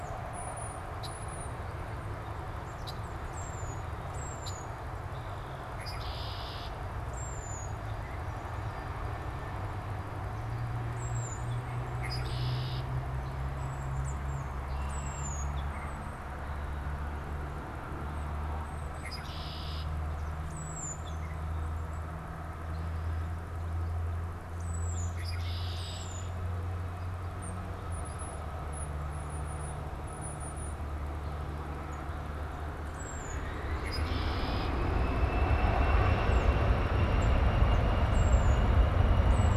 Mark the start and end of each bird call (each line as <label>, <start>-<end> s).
Tufted Titmouse (Baeolophus bicolor), 0.0-5.0 s
Red-winged Blackbird (Agelaius phoeniceus), 0.9-1.2 s
Red-winged Blackbird (Agelaius phoeniceus), 2.8-3.0 s
Red-winged Blackbird (Agelaius phoeniceus), 4.4-4.7 s
Red-winged Blackbird (Agelaius phoeniceus), 5.1-6.9 s
Tufted Titmouse (Baeolophus bicolor), 7.0-39.6 s
Red-winged Blackbird (Agelaius phoeniceus), 11.9-12.9 s
Red-winged Blackbird (Agelaius phoeniceus), 14.6-15.5 s
Red-winged Blackbird (Agelaius phoeniceus), 18.9-20.0 s
Red-winged Blackbird (Agelaius phoeniceus), 25.1-26.4 s
Red-winged Blackbird (Agelaius phoeniceus), 33.7-34.8 s